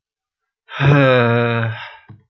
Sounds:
Sigh